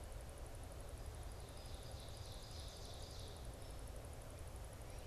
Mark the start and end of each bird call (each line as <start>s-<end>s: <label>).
1.4s-3.6s: Ovenbird (Seiurus aurocapilla)